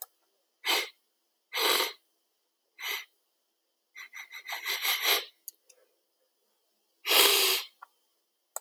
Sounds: Sniff